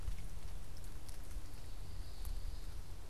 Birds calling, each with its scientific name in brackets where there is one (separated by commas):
Common Yellowthroat (Geothlypis trichas)